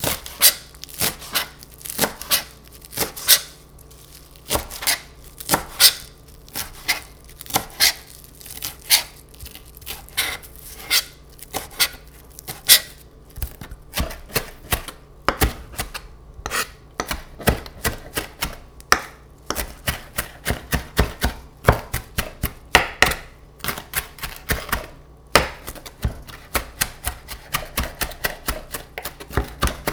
Is someone cutting something?
yes